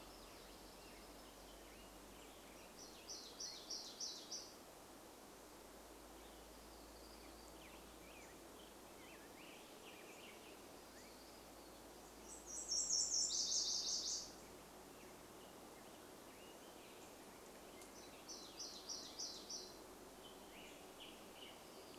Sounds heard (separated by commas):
warbler song, Black-headed Grosbeak song, Nashville Warbler song